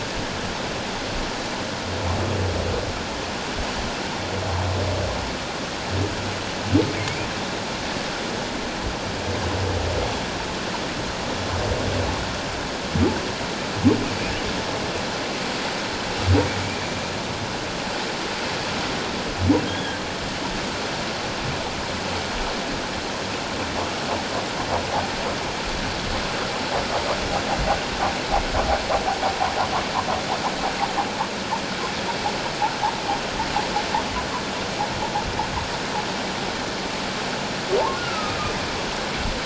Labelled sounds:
7.0	7.3	humpback whale, 2.1 to 2.5 kHz
19.6	20.0	humpback whale, 1.4 to 3.5 kHz
37.9	38.4	humpback whale, 1.2 to 1.5 kHz

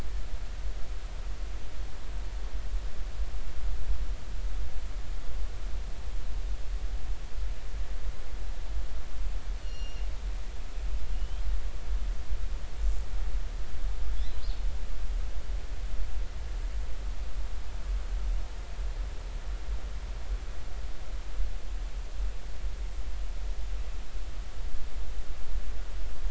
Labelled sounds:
9.6	10.1	killer whale, northern resident, 2.7 to 5.9 kHz
11.1	11.4	killer whale, northern resident, 2.8 to 3.3 kHz

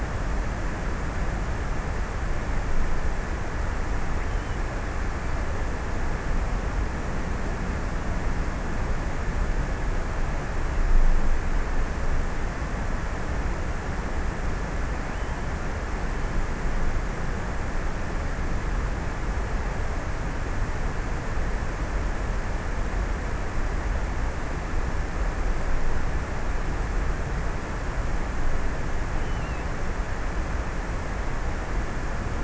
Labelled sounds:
28.5	30.7	killer whale, offshore, 2.2 to 3.4 kHz

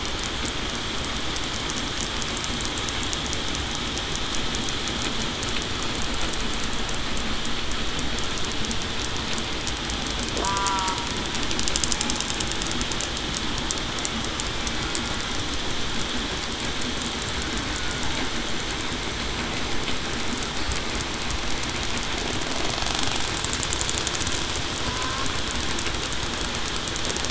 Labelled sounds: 10.4	11.0	killer whale, southern resident, 0.89 to 1.4 kHz

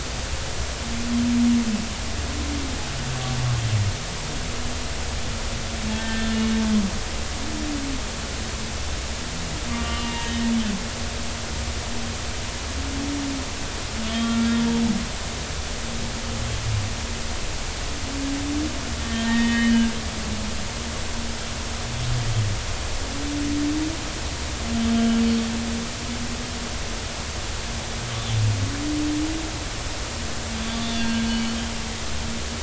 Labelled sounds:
6.0	6.3	humpback whale, 1.5 to 1.9 kHz
9.7	10.4	humpback whale, 0.86 to 3.1 kHz
14.1	14.6	humpback whale, 1.3 to 3.3 kHz
19.0	19.7	humpback whale, 1.8 to 3.3 kHz
30.9	31.3	humpback whale, 1.5 to 1.7 kHz
31.8	32.1	humpback whale, 3.4 to 3.5 kHz

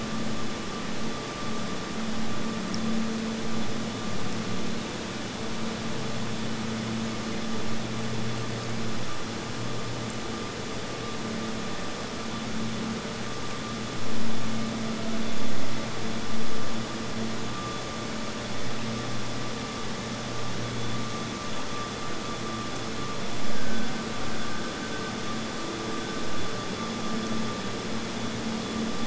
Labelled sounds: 23.4	26.8	killer whale, Bigg's (transient), Gulf of Alaska transient, 1.4 to 1.7 kHz

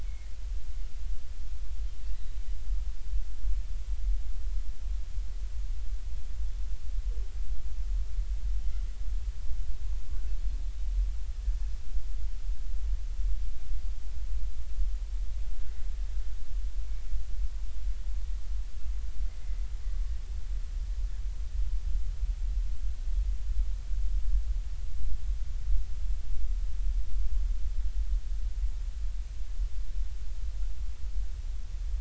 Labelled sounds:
0.0	0.3	Pacific white-sided dolphin, 2.0 to 2.3 kHz

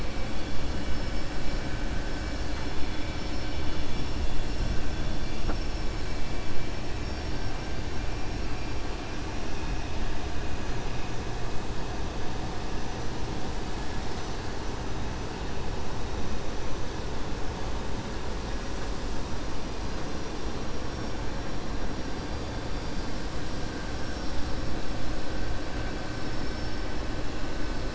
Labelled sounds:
8.1	8.8	vessel noise, 4.0 to 5.6 kHz

